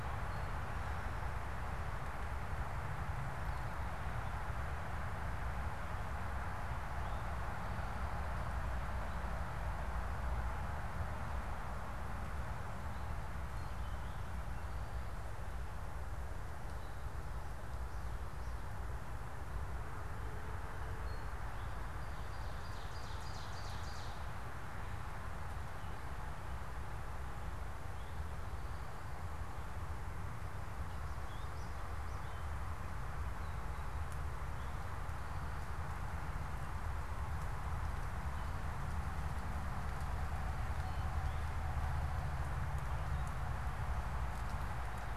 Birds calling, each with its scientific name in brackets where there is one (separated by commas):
unidentified bird, Ovenbird (Seiurus aurocapilla)